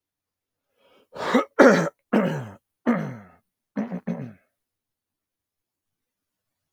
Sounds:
Throat clearing